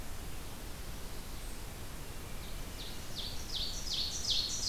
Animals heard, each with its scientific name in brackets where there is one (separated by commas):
Ovenbird (Seiurus aurocapilla)